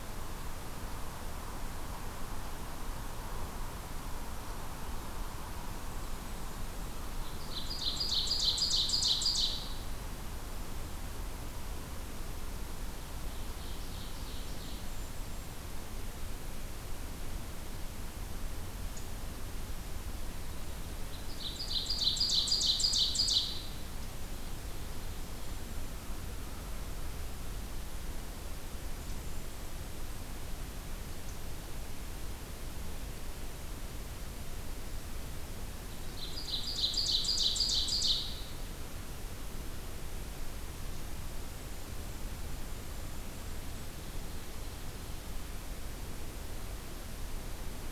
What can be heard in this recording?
Blackburnian Warbler, Ovenbird, Golden-crowned Kinglet